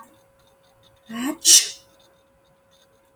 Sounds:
Sneeze